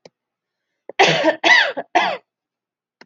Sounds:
Cough